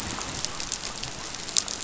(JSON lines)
{"label": "biophony", "recorder": "SoundTrap 500"}